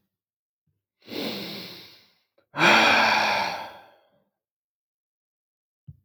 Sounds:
Sigh